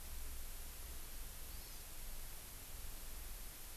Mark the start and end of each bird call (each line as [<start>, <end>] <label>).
[1.50, 1.90] Hawaii Amakihi (Chlorodrepanis virens)